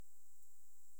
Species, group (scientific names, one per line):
Pholidoptera griseoaptera
Orthoptera